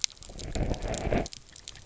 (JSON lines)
{"label": "biophony", "recorder": "SoundTrap 300"}